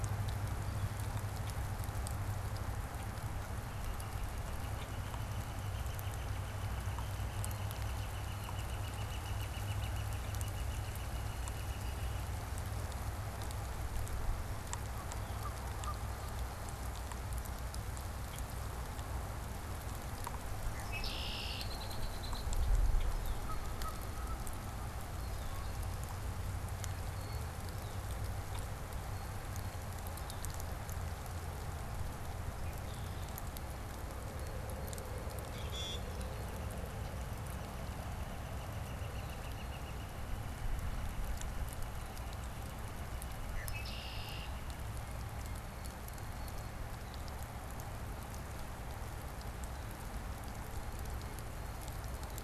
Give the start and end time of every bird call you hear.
[3.50, 12.60] Northern Flicker (Colaptes auratus)
[20.40, 22.60] Red-winged Blackbird (Agelaius phoeniceus)
[23.10, 24.90] Canada Goose (Branta canadensis)
[25.20, 30.00] Blue Jay (Cyanocitta cristata)
[32.40, 33.50] Red-winged Blackbird (Agelaius phoeniceus)
[35.30, 36.30] Common Grackle (Quiscalus quiscula)
[36.90, 43.80] Northern Flicker (Colaptes auratus)
[43.40, 44.70] Red-winged Blackbird (Agelaius phoeniceus)
[45.70, 46.90] Blue Jay (Cyanocitta cristata)

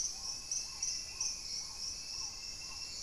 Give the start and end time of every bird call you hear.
[0.00, 3.03] Black-tailed Trogon (Trogon melanurus)
[0.00, 3.03] Hauxwell's Thrush (Turdus hauxwelli)

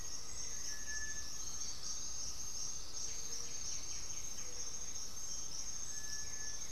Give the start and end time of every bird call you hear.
[0.00, 1.12] Black-faced Antthrush (Formicarius analis)
[0.00, 6.71] Gray-fronted Dove (Leptotila rufaxilla)
[0.52, 1.42] Cinereous Tinamou (Crypturellus cinereus)
[2.62, 4.82] White-winged Becard (Pachyramphus polychopterus)
[5.92, 6.71] Blue-gray Saltator (Saltator coerulescens)

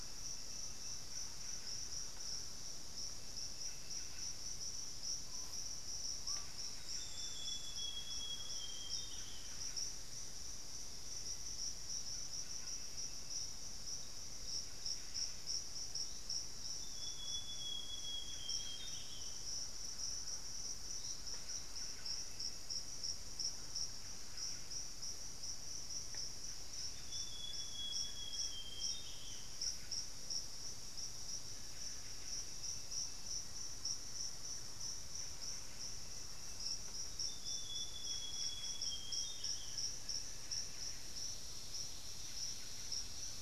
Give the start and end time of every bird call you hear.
[0.00, 43.42] Buff-breasted Wren (Cantorchilus leucotis)
[5.08, 6.88] Screaming Piha (Lipaugus vociferans)
[6.58, 9.48] Amazonian Grosbeak (Cyanoloxia rothschildii)
[9.88, 12.28] Black-faced Antthrush (Formicarius analis)
[12.48, 12.88] Screaming Piha (Lipaugus vociferans)
[16.48, 19.38] Amazonian Grosbeak (Cyanoloxia rothschildii)
[19.08, 24.98] Thrush-like Wren (Campylorhynchus turdinus)
[26.68, 29.58] Amazonian Grosbeak (Cyanoloxia rothschildii)
[27.38, 28.98] Solitary Black Cacique (Cacicus solitarius)
[33.28, 35.28] Black-faced Antthrush (Formicarius analis)
[36.98, 39.88] Amazonian Grosbeak (Cyanoloxia rothschildii)
[39.18, 41.38] Solitary Black Cacique (Cacicus solitarius)

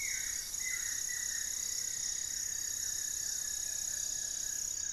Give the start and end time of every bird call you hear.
[0.00, 4.92] Amazonian Trogon (Trogon ramonianus)
[0.00, 4.92] Buff-throated Woodcreeper (Xiphorhynchus guttatus)
[1.34, 2.14] Gray-fronted Dove (Leptotila rufaxilla)
[3.54, 4.64] Plumbeous Pigeon (Patagioenas plumbea)

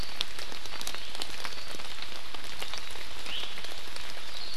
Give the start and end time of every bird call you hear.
[3.28, 3.48] Iiwi (Drepanis coccinea)

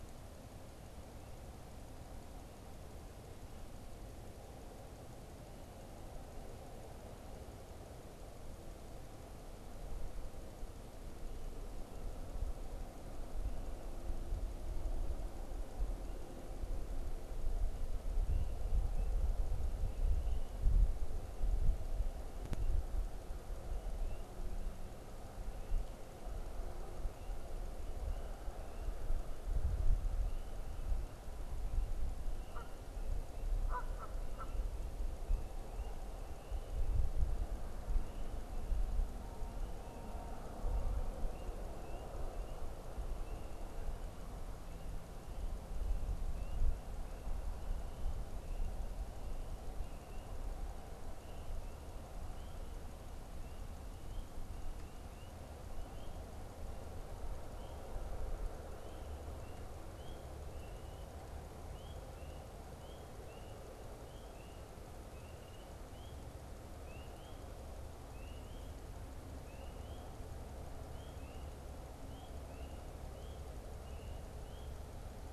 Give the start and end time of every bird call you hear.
[32.09, 34.78] Canada Goose (Branta canadensis)

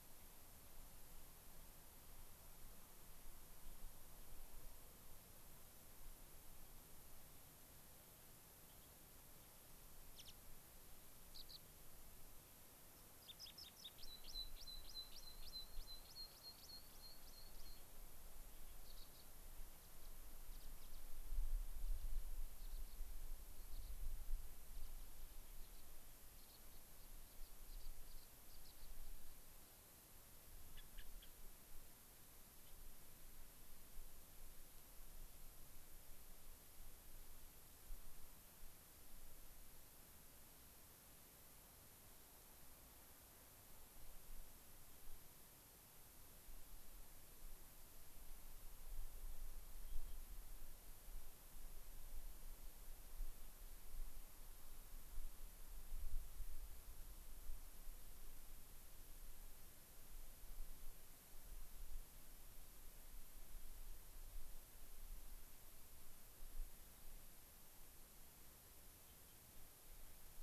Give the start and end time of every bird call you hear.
[10.07, 10.37] American Pipit (Anthus rubescens)
[11.27, 11.67] American Pipit (Anthus rubescens)
[13.17, 17.87] American Pipit (Anthus rubescens)
[18.77, 19.27] American Pipit (Anthus rubescens)
[19.77, 20.07] American Pipit (Anthus rubescens)
[20.47, 20.97] American Pipit (Anthus rubescens)
[22.57, 22.97] American Pipit (Anthus rubescens)
[23.67, 23.97] American Pipit (Anthus rubescens)
[24.67, 24.87] American Pipit (Anthus rubescens)
[25.57, 25.87] American Pipit (Anthus rubescens)
[26.27, 29.47] American Pipit (Anthus rubescens)
[30.67, 31.27] Gray-crowned Rosy-Finch (Leucosticte tephrocotis)
[32.67, 32.77] Gray-crowned Rosy-Finch (Leucosticte tephrocotis)

